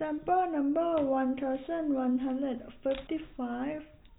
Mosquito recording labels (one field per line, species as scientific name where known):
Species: no mosquito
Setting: cup